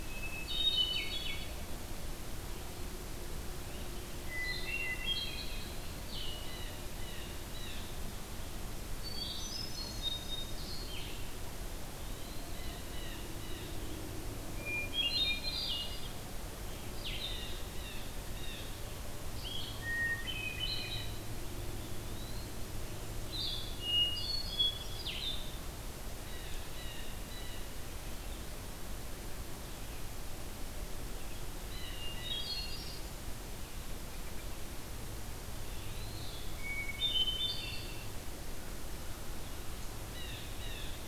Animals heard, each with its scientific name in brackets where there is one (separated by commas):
Hermit Thrush (Catharus guttatus), Blue Jay (Cyanocitta cristata), Blue-headed Vireo (Vireo solitarius), Eastern Wood-Pewee (Contopus virens)